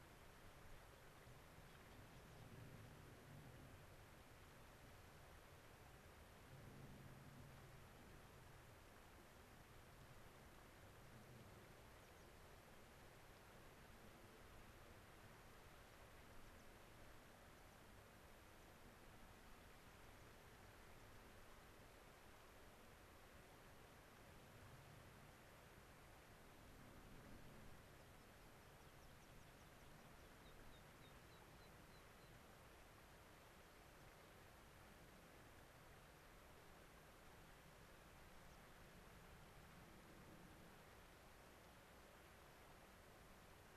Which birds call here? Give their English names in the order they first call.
American Pipit